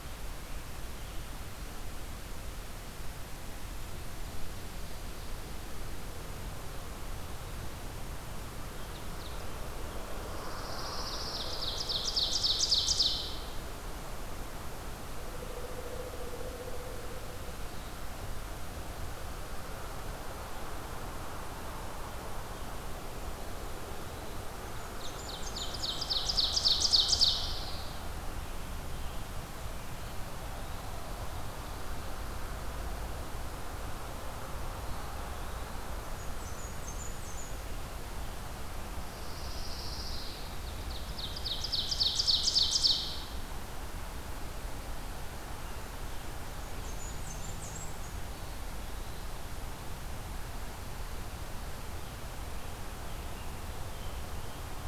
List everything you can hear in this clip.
Ovenbird, Pine Warbler, Blackburnian Warbler, Eastern Wood-Pewee, Scarlet Tanager